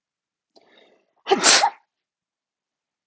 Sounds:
Sneeze